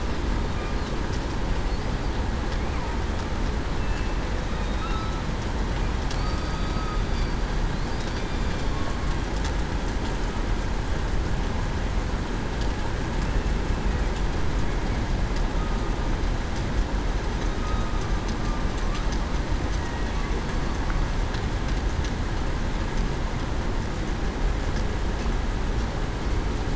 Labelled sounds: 3.8	4.1	killer whale, southern resident, 2.6 to 2.7 kHz
4.6	5.0	killer whale, southern resident, 3.7 to 3.8 kHz
6.2	6.7	killer whale, southern resident, 4.5 to 4.7 kHz
8.2	9.0	killer whale, southern resident, 1.1 to 3.6 kHz
17.6	17.9	killer whale, southern resident, 1.2 to 1.3 kHz
19.8	20.1	killer whale, southern resident, 1.85 to 1.92 kHz

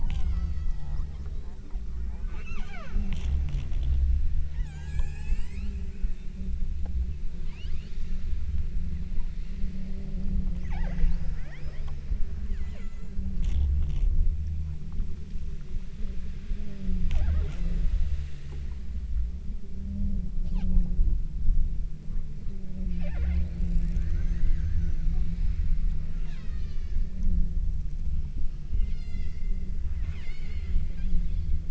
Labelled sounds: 0.0	1.3	killer whale, southern Alaska resident, 0.59 to 8.0 kHz
2.3	3.2	killer whale, southern Alaska resident, 0.42 to 8.0 kHz
4.5	5.9	killer whale, southern Alaska resident, 0.59 to 8.0 kHz
7.5	8.2	killer whale, southern Alaska resident, 0.70 to 6.2 kHz
10.6	12.2	killer whale, southern Alaska resident, 0.38 to 6.8 kHz
12.5	13.3	killer whale, southern Alaska resident, 1.1 to 7.3 kHz
23.0	23.6	killer whale, southern Alaska resident, 1.2 to 5.6 kHz
24.1	25.9	killer whale, southern Alaska resident, 1.2 to 7.1 kHz
26.2	27.4	killer whale, southern Alaska resident, 0.89 to 6.8 kHz
28.8	29.6	killer whale, southern Alaska resident, 0.53 to 8.0 kHz
30.0	31.7	killer whale, southern Alaska resident, 0.55 to 8.0 kHz

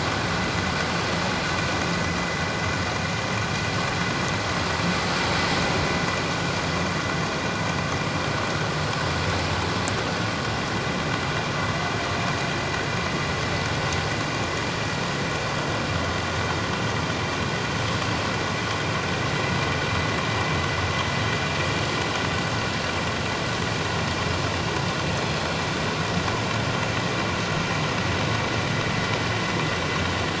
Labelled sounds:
25.1	25.5	killer whale, northern resident, G clan, 3.3 to 4.2 kHz

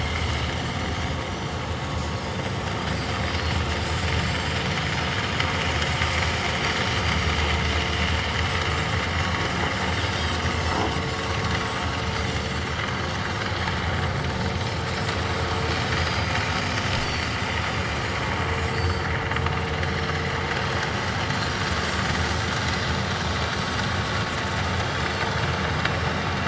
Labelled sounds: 0.9	1.6	Pacific white-sided dolphin, 5.6 to 6.7 kHz
4.2	4.6	Pacific white-sided dolphin, 7.2 to 7.7 kHz
7.0	7.2	Pacific white-sided dolphin, 7.6 to 8.0 kHz
10.5	10.8	Pacific white-sided dolphin, 5.2 to 5.5 kHz
11.6	12.7	Pacific white-sided dolphin, 4.3 to 8.0 kHz
15.9	17.3	Pacific white-sided dolphin, 4.4 to 8.0 kHz
18.4	19.1	Pacific white-sided dolphin, 4.2 to 7.7 kHz
19.8	20.3	Pacific white-sided dolphin, 5.0 to 5.6 kHz
21.8	22.1	Pacific white-sided dolphin, 7.0 to 7.3 kHz
23.5	23.8	Pacific white-sided dolphin, 6.1 to 6.3 kHz
25.0	26.2	Pacific white-sided dolphin, 4.3 to 5.6 kHz

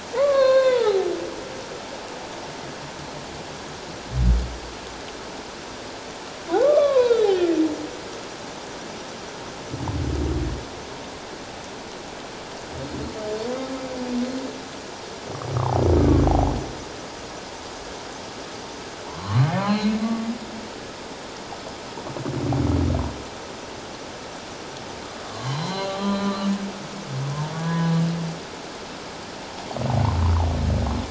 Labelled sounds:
0.1	1.1	humpback whale, 0.78 to 4.4 kHz
6.6	7.3	humpback whale, 0.91 to 4.0 kHz
16.0	16.2	humpback whale, 1.1 to 1.3 kHz
19.1	19.9	humpback whale, 0.78 to 4.3 kHz
25.3	26.5	humpback whale, 0.88 to 4.2 kHz
27.6	27.9	humpback whale, 1.6 to 1.7 kHz

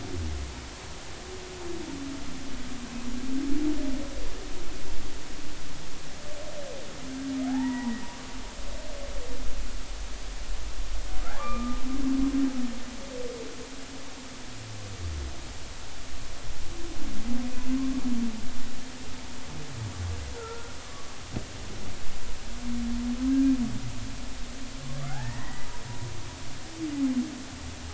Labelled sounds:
7.5	7.9	humpback whale, 0.80 to 2.0 kHz
11.4	11.8	humpback whale, 1.0 to 2.5 kHz
20.4	20.8	humpback whale, 1.3 to 1.4 kHz
25.0	25.7	humpback whale, 0.80 to 2.0 kHz

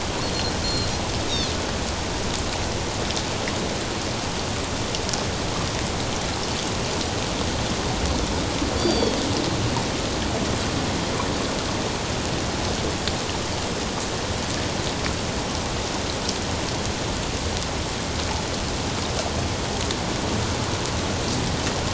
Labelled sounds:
0.6	0.9	Pacific white-sided dolphin, 4.1 to 4.3 kHz
8.8	9.2	Pacific white-sided dolphin, 3.2 to 4.8 kHz

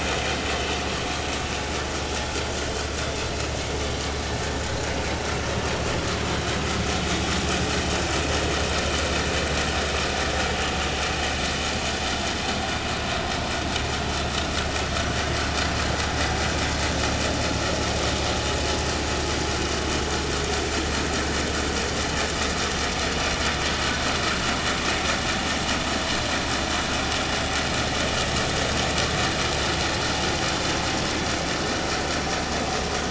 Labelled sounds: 1.1	1.8	vessel noise, 2.1 to 2.3 kHz

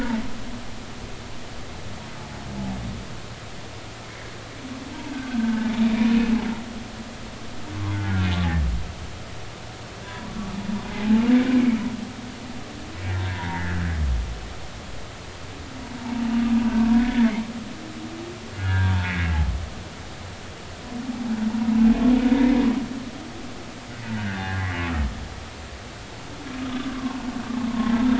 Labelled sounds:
5.1	5.9	humpback whale, 1.4 to 2.6 kHz
7.9	8.3	humpback whale, 1.3 to 1.7 kHz
10.0	10.3	humpback whale, 0.93 to 1.0 kHz
10.9	11.8	humpback whale, 0.80 to 2.4 kHz
13.6	13.8	humpback whale, 1.5 to 1.9 kHz
17.0	17.3	humpback whale, 1.6 to 1.9 kHz
18.6	19.3	humpback whale, 0.83 to 2.3 kHz
22.3	22.6	humpback whale, 2.0 to 2.1 kHz
24.2	25.0	humpback whale, 1.0 to 1.9 kHz
25.5	25.8	humpback whale, 1.0 to 1.2 kHz
26.9	27.2	humpback whale, 0.99 to 1.2 kHz

